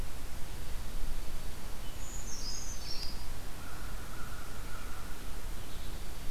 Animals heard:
American Crow (Corvus brachyrhynchos), Brown Creeper (Certhia americana)

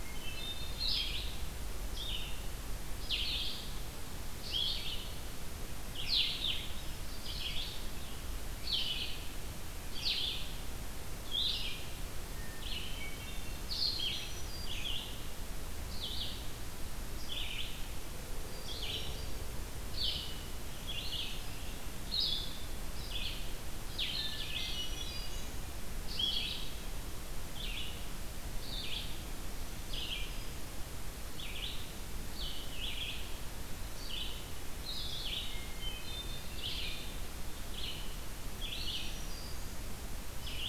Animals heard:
Black-throated Green Warbler (Setophaga virens), Red-eyed Vireo (Vireo olivaceus), Hermit Thrush (Catharus guttatus), Blue-headed Vireo (Vireo solitarius)

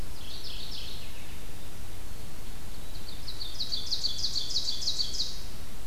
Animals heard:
Mourning Warbler (Geothlypis philadelphia), Ovenbird (Seiurus aurocapilla), White-throated Sparrow (Zonotrichia albicollis)

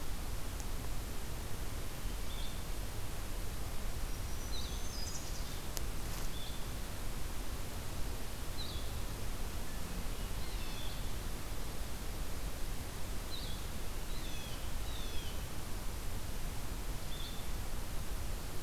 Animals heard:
Black-throated Green Warbler (Setophaga virens), Blue-headed Vireo (Vireo solitarius), Blue Jay (Cyanocitta cristata), Black-capped Chickadee (Poecile atricapillus)

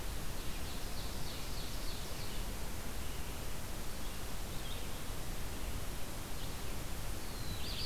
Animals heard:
Red-eyed Vireo (Vireo olivaceus), Black-throated Blue Warbler (Setophaga caerulescens), Ovenbird (Seiurus aurocapilla)

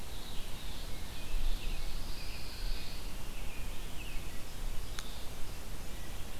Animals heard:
American Robin (Turdus migratorius), Pine Warbler (Setophaga pinus), Red-eyed Vireo (Vireo olivaceus), Wood Thrush (Hylocichla mustelina)

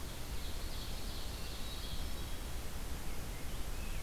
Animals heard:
Hermit Thrush (Catharus guttatus), Rose-breasted Grosbeak (Pheucticus ludovicianus), Ovenbird (Seiurus aurocapilla)

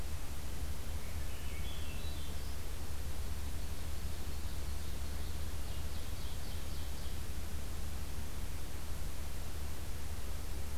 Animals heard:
Ovenbird (Seiurus aurocapilla), Swainson's Thrush (Catharus ustulatus), Hermit Thrush (Catharus guttatus)

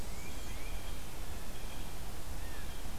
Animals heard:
Black-and-white Warbler (Mniotilta varia), Blue Jay (Cyanocitta cristata), Tufted Titmouse (Baeolophus bicolor)

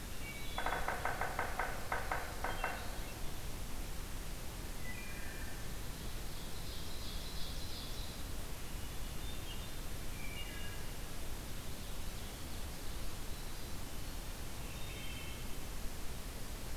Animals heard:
Ovenbird (Seiurus aurocapilla), Yellow-bellied Sapsucker (Sphyrapicus varius), Wood Thrush (Hylocichla mustelina)

